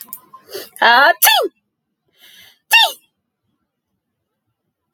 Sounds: Sneeze